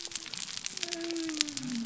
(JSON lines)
{"label": "biophony", "recorder": "SoundTrap 300"}